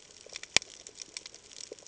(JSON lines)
{"label": "ambient", "recorder": "HydroMoth"}